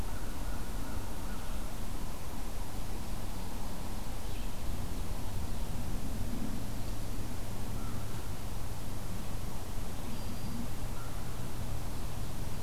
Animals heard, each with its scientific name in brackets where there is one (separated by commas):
Ovenbird (Seiurus aurocapilla), American Crow (Corvus brachyrhynchos), Black-throated Green Warbler (Setophaga virens)